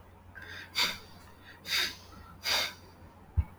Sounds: Sniff